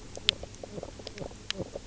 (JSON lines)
{"label": "biophony, knock croak", "recorder": "SoundTrap 300"}